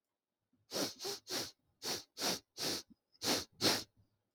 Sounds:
Sniff